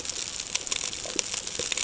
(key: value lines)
label: ambient
recorder: HydroMoth